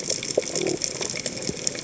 {"label": "biophony", "recorder": "HydroMoth"}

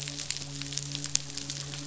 {"label": "biophony, midshipman", "recorder": "SoundTrap 500"}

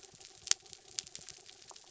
{"label": "anthrophony, mechanical", "recorder": "SoundTrap 300"}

